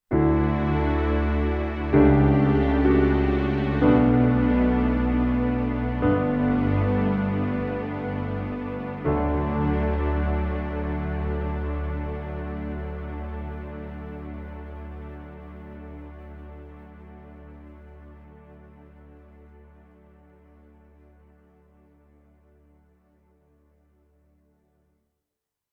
Does the music stop?
yes